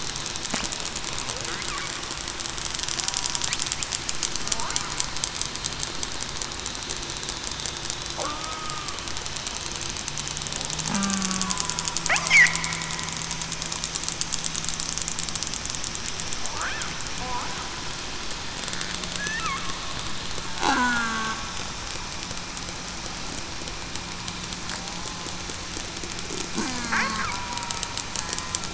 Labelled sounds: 8.2	9.0	killer whale, southern resident, 1.1 to 1.3 kHz
10.8	11.5	killer whale, southern resident, 0.19 to 0.26 kHz
20.7	21.2	killer whale, southern resident, 1.3 to 1.7 kHz
26.5	26.9	killer whale, southern resident, 0.21 to 0.33 kHz
27.3	27.8	killer whale, southern resident, 0.91 to 1.0 kHz

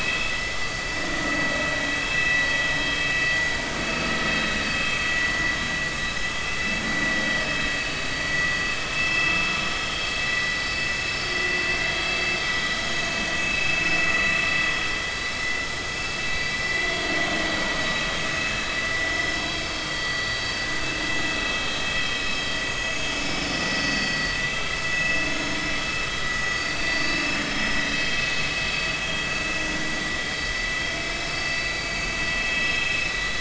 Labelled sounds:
0.3	0.9	vessel noise, 4.6 to 5.4 kHz
2.1	2.4	vessel noise, 2.6 to 2.7 kHz
2.8	3.0	vessel noise, 3.0 to 3.3 kHz
9.0	9.4	vessel noise, 2.6 to 2.8 kHz
10.2	10.5	vessel noise, 1.9 to 2.1 kHz
12.8	13.8	vessel noise, 2.5 to 6.7 kHz
18.5	19.6	vessel noise, 1.6 to 4.7 kHz
23.2	24.2	vessel noise, 3.1 to 5.3 kHz
24.5	25.2	vessel noise, 1.3 to 2.7 kHz
26.6	28.2	vessel noise, 3.0 to 5.2 kHz
28.6	29.0	vessel noise, 4.5 to 4.6 kHz
31.3	31.6	vessel noise, 4.6 to 4.7 kHz

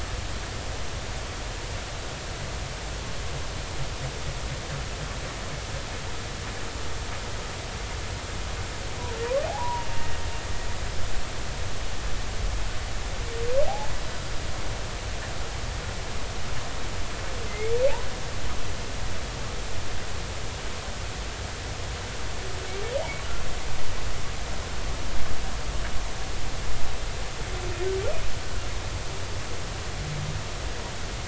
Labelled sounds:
9.5	9.9	humpback whale, 0.80 to 1.0 kHz
13.7	13.9	humpback whale, 0.80 to 0.99 kHz
17.5	17.8	humpback whale, 2.0 to 2.4 kHz

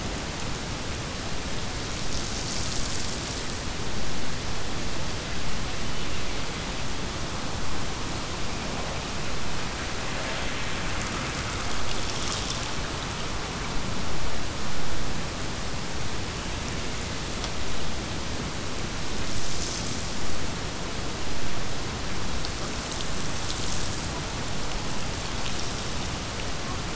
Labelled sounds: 5.5	6.8	killer whale, Bigg's (transient), Gulf of Alaska transient, 1.9 to 3.3 kHz

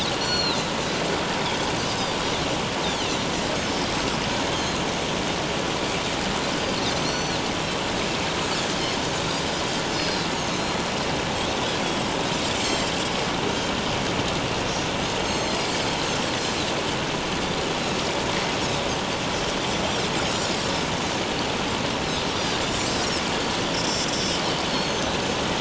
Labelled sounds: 0.2	0.6	Pacific white-sided dolphin, 2.5 to 7.3 kHz
2.8	3.9	Pacific white-sided dolphin, 2.6 to 5.4 kHz
4.6	4.8	Pacific white-sided dolphin, 4.0 to 6.9 kHz
6.9	7.4	Pacific white-sided dolphin, 4.0 to 6.2 kHz
9.9	10.8	Pacific white-sided dolphin, 3.8 to 5.2 kHz
12.6	12.9	Pacific white-sided dolphin, 4.0 to 7.6 kHz
13.5	13.7	Pacific white-sided dolphin, 6.2 to 6.5 kHz
15.2	15.8	Pacific white-sided dolphin, 4.1 to 7.6 kHz
19.3	19.6	Pacific white-sided dolphin, 5.2 to 5.6 kHz
20.3	20.6	Pacific white-sided dolphin, 6.7 to 7.2 kHz
23.7	25.1	Pacific white-sided dolphin, 4.2 to 7.5 kHz

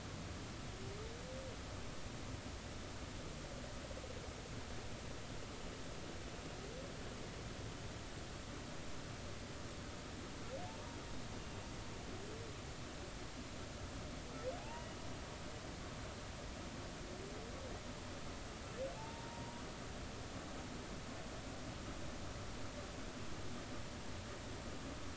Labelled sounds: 14.6	15.0	humpback whale, 0.80 to 3.0 kHz
18.9	19.6	humpback whale, 0.83 to 1.0 kHz

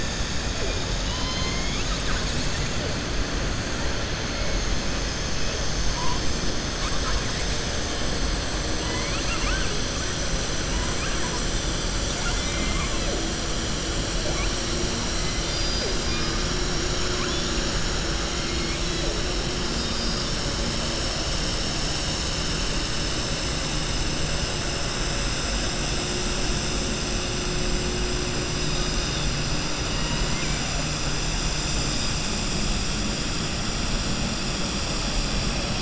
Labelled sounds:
0.9	2.0	killer whale, southern resident, 1.0 to 5.1 kHz
8.8	9.7	killer whale, southern resident, 1.0 to 3.1 kHz
10.7	11.3	killer whale, southern resident, 0.96 to 2.8 kHz
11.9	13.0	killer whale, southern resident, 0.65 to 5.5 kHz
15.1	16.4	killer whale, southern resident, 2.0 to 5.0 kHz
17.1	17.5	killer whale, southern resident, 1.0 to 3.7 kHz
29.9	30.6	killer whale, southern resident, 0.94 to 3.9 kHz

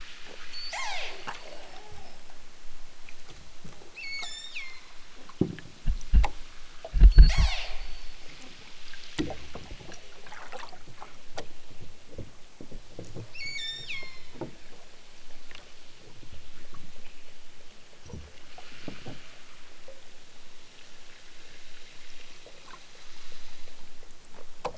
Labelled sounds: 0.5	1.2	killer whale, southern Alaska resident, 0.23 to 8.0 kHz
3.9	5.0	killer whale, southern Alaska resident, 0.51 to 8.0 kHz
7.0	8.2	killer whale, southern Alaska resident, 0.41 to 8.0 kHz
13.3	14.3	killer whale, southern Alaska resident, 0.69 to 8.0 kHz

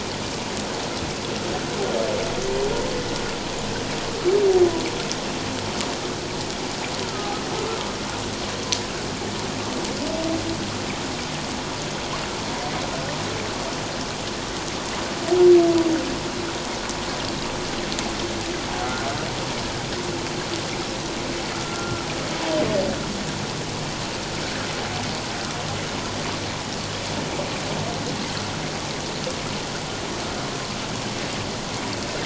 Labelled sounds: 7.0	7.3	humpback whale, 1.2 to 1.5 kHz
18.8	19.1	humpback whale, 1.3 to 1.5 kHz
21.6	22.1	humpback whale, 1.2 to 1.4 kHz

